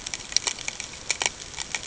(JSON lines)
{"label": "ambient", "recorder": "HydroMoth"}